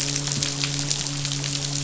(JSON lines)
{"label": "biophony, midshipman", "recorder": "SoundTrap 500"}